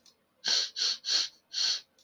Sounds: Sniff